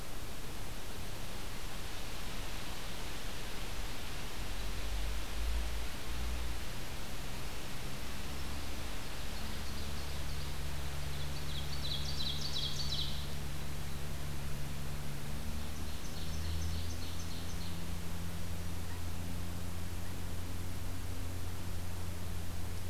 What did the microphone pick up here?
Black-throated Green Warbler, Ovenbird